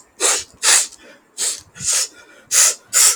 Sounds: Sniff